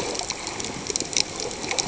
{"label": "ambient", "recorder": "HydroMoth"}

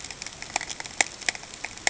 {"label": "ambient", "recorder": "HydroMoth"}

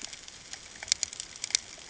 {"label": "ambient", "recorder": "HydroMoth"}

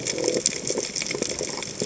{"label": "biophony", "recorder": "HydroMoth"}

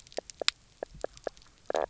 {"label": "biophony, knock croak", "recorder": "SoundTrap 300"}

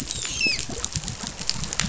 {"label": "biophony, dolphin", "recorder": "SoundTrap 500"}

